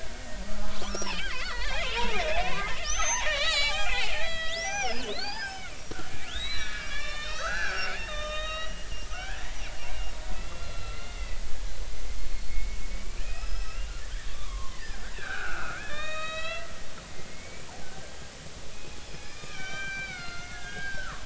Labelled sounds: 0.6	5.7	killer whale, Bigg's (transient), 0.80 to 7.9 kHz
6.3	9.5	killer whale, Bigg's (transient), 1.1 to 7.3 kHz
10.3	16.7	killer whale, Bigg's (transient), 0.90 to 7.2 kHz
17.1	18.1	killer whale, Bigg's (transient), 1.4 to 2.5 kHz
19.1	21.2	killer whale, Bigg's (transient), 0.99 to 6.0 kHz

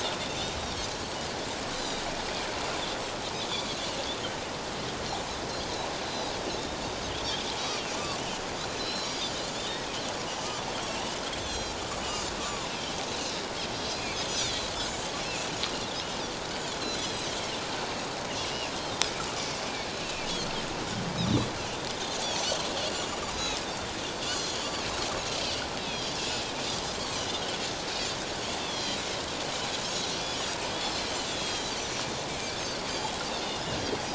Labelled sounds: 0.0	0.5	Pacific white-sided dolphin, 3.4 to 3.8 kHz
1.7	2.0	Pacific white-sided dolphin, 3.7 to 6.2 kHz
6.1	6.3	Pacific white-sided dolphin, 3.8 to 5.2 kHz
7.9	9.4	Pacific white-sided dolphin, 1.0 to 5.5 kHz
11.4	12.7	Pacific white-sided dolphin, 0.94 to 7.6 kHz
13.9	15.1	Pacific white-sided dolphin, 2.1 to 7.9 kHz
16.8	17.3	Pacific white-sided dolphin, 3.7 to 4.2 kHz
19.8	20.3	Pacific white-sided dolphin, 2.6 to 4.5 kHz
21.2	21.5	Pacific white-sided dolphin, 3.2 to 4.1 kHz
23.3	23.6	Pacific white-sided dolphin, 3.8 to 4.0 kHz
24.2	24.7	Pacific white-sided dolphin, 3.0 to 4.8 kHz
25.8	26.4	Pacific white-sided dolphin, 2.5 to 5.0 kHz
28.6	29.1	Pacific white-sided dolphin, 3.0 to 5.9 kHz
30.8	31.7	Pacific white-sided dolphin, 3.1 to 5.3 kHz
32.9	33.1	Pacific white-sided dolphin, 3.0 to 3.5 kHz

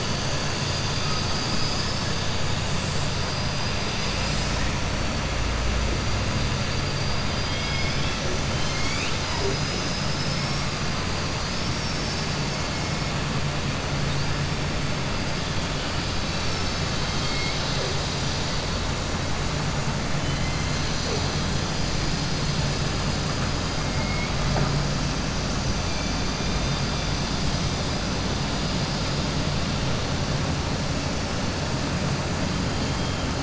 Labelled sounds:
1.0	2.1	killer whale, southern resident, 3.9 to 5.5 kHz
3.3	3.7	killer whale, southern resident, 4.0 to 5.9 kHz
7.2	8.2	killer whale, southern resident, 1.7 to 5.5 kHz
11.4	13.0	killer whale, southern resident, 4.2 to 6.2 kHz
16.2	17.9	killer whale, southern resident, 2.1 to 6.3 kHz

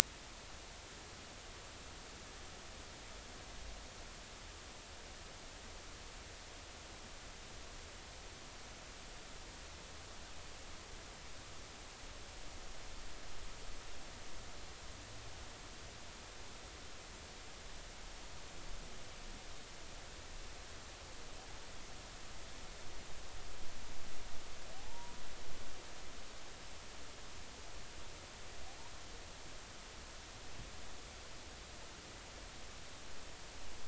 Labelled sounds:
24.7	25.2	humpback whale, 0.80 to 0.99 kHz

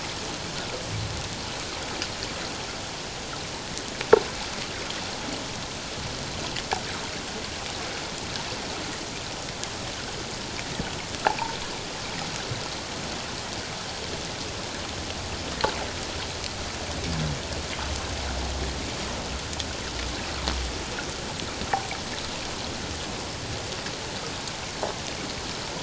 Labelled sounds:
11.2	11.6	humpback whale, 0.78 to 1.0 kHz

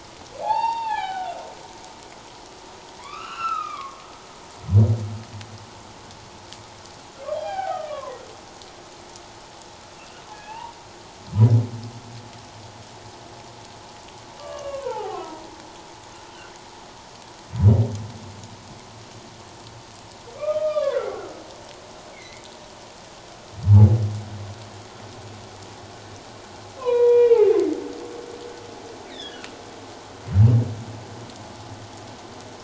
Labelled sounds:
0.4	1.4	humpback whale, 0.78 to 4.7 kHz
3.0	4.0	humpback whale, 0.94 to 5.5 kHz
7.3	8.2	humpback whale, 0.78 to 4.9 kHz
10.0	10.7	humpback whale, 0.81 to 2.9 kHz
14.4	15.4	humpback whale, 0.78 to 3.0 kHz
20.3	21.4	humpback whale, 0.97 to 3.8 kHz
22.1	22.5	humpback whale, 1.9 to 2.3 kHz
26.8	27.5	humpback whale, 0.91 to 4.0 kHz
29.1	29.5	humpback whale, 1.4 to 4.0 kHz

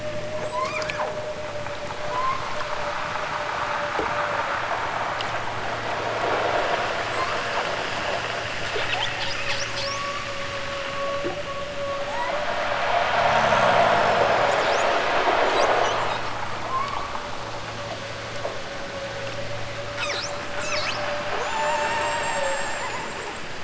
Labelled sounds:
0.4	1.2	killer whale, southern Alaska resident, 0.88 to 8.0 kHz
2.1	2.5	killer whale, southern Alaska resident, 0.69 to 1.6 kHz
7.0	7.7	killer whale, southern Alaska resident, 6.9 to 8.0 kHz
12.0	12.7	killer whale, southern Alaska resident, 4.2 to 8.0 kHz
16.6	17.2	killer whale, southern Alaska resident, 0.69 to 5.0 kHz
19.9	21.1	killer whale, southern Alaska resident, 0.97 to 8.0 kHz
21.4	23.6	killer whale, southern Alaska resident, 0.46 to 8.0 kHz

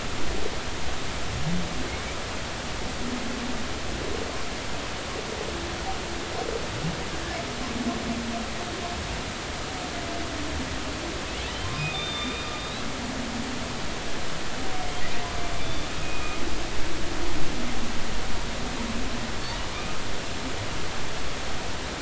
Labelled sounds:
11.8	12.8	humpback whale, 2.2 to 4.0 kHz
15.6	16.4	humpback whale, 2.4 to 3.6 kHz

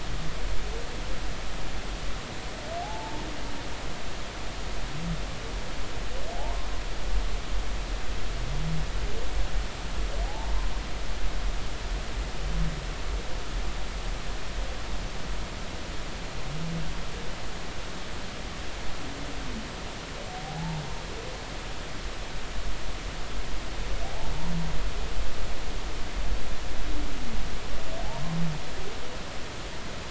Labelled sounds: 2.8	3.2	humpback whale, 0.80 to 1.0 kHz
6.3	6.7	humpback whale, 0.80 to 1.1 kHz
10.3	10.5	humpback whale, 0.80 to 0.96 kHz
20.4	20.8	humpback whale, 0.80 to 0.96 kHz
24.0	24.3	humpback whale, 0.80 to 0.93 kHz

